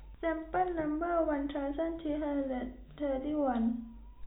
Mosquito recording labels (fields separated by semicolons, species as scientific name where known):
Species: no mosquito; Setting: cup